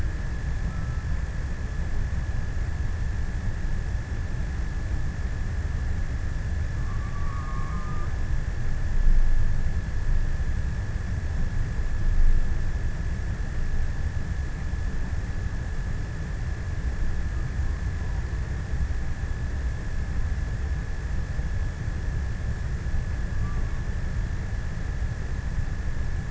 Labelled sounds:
6.0	8.7	killer whale, offshore, 0 to 2.3 kHz

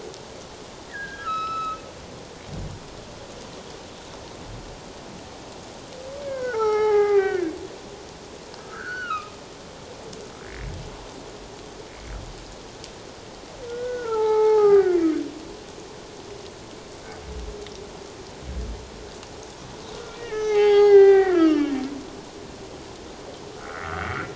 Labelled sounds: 0.9	1.8	humpback whale, 1.2 to 5.3 kHz
6.2	7.5	humpback whale, 0.78 to 5.8 kHz
8.6	9.3	humpback whale, 1.1 to 4.6 kHz
13.7	15.2	humpback whale, 0.78 to 4.0 kHz
20.1	21.7	humpback whale, 0.78 to 6.5 kHz
23.7	24.1	humpback whale, 1.1 to 1.6 kHz

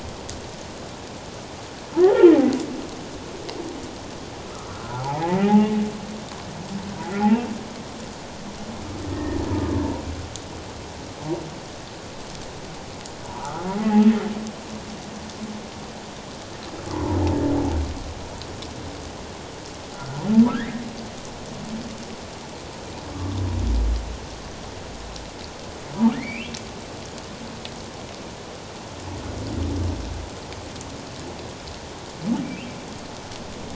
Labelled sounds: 2.0	2.3	humpback whale, 0.78 to 2.0 kHz
4.7	5.7	humpback whale, 0.78 to 1.5 kHz
9.1	9.4	humpback whale, 1.7 to 2.1 kHz
13.4	13.7	humpback whale, 1.1 to 1.5 kHz
19.9	20.8	humpback whale, 1.2 to 2.1 kHz
23.0	23.4	humpback whale, 1.0 to 1.2 kHz
26.1	26.5	humpback whale, 1.7 to 3.1 kHz

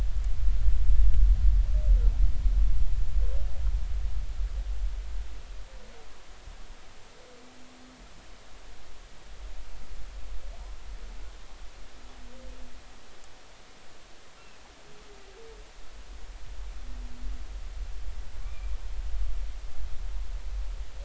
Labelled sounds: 18.4	18.7	humpback whale, 2.2 to 2.5 kHz
19.4	19.7	humpback whale, 1.0 to 1.2 kHz

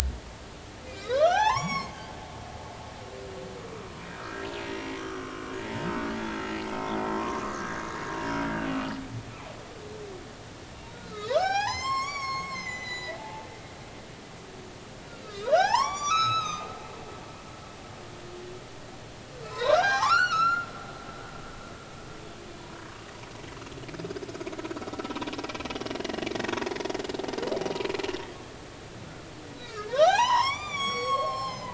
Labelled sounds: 1.0	1.9	humpback whale, 0.80 to 6.9 kHz
4.6	5.4	humpback whale, 1.0 to 5.8 kHz
5.9	6.1	humpback whale, 1.4 to 1.6 kHz
7.1	7.8	humpback whale, 0.96 to 1.8 kHz
8.2	8.5	humpback whale, 5.0 to 5.4 kHz
11.0	13.5	humpback whale, 0.80 to 8.0 kHz
15.2	16.7	humpback whale, 0.80 to 8.0 kHz
19.4	20.7	humpback whale, 0.80 to 7.0 kHz
27.0	27.2	humpback whale, 7.0 to 7.2 kHz
29.6	31.7	humpback whale, 0.80 to 8.0 kHz

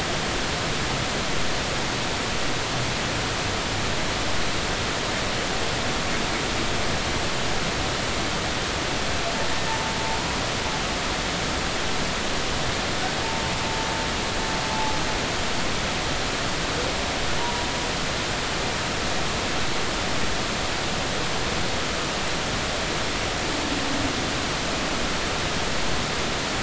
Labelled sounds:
9.7	9.9	humpback whale, 0.83 to 0.96 kHz
17.4	17.7	humpback whale, 0.90 to 1.0 kHz

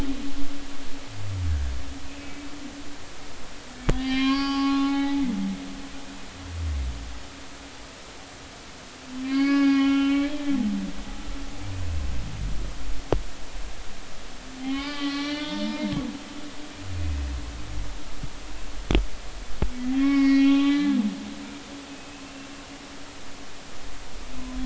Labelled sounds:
2.1	2.5	humpback whale, 2.2 to 2.7 kHz
3.9	5.3	humpback whale, 0.80 to 5.6 kHz
9.3	10.6	humpback whale, 0.80 to 5.1 kHz
14.7	16.1	humpback whale, 0.80 to 5.2 kHz
17.0	17.2	humpback whale, 2.4 to 2.6 kHz
20.0	21.0	humpback whale, 1.1 to 4.8 kHz
21.6	22.3	humpback whale, 2.0 to 2.8 kHz

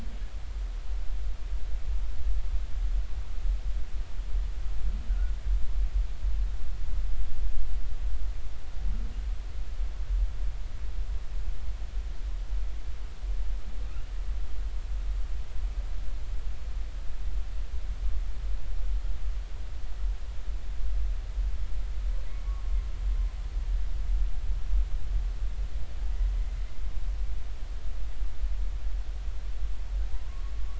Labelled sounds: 5.1	5.3	humpback whale, 1.4 to 1.6 kHz
30.1	30.5	humpback whale, 0.90 to 1.2 kHz

